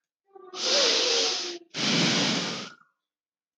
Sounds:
Sigh